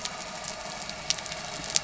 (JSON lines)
{"label": "anthrophony, boat engine", "recorder": "SoundTrap 300"}